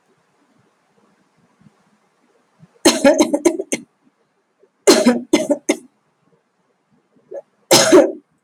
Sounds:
Cough